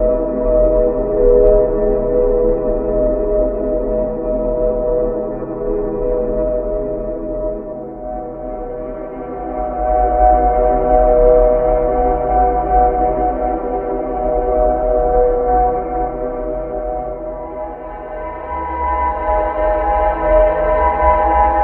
Does someone scream?
no